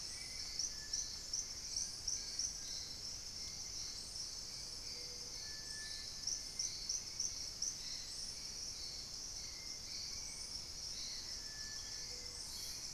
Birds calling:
Collared Trogon (Trogon collaris), Purple-throated Fruitcrow (Querula purpurata), Hauxwell's Thrush (Turdus hauxwelli)

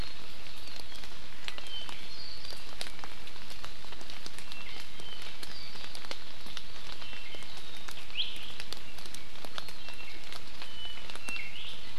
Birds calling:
Apapane (Himatione sanguinea), Iiwi (Drepanis coccinea)

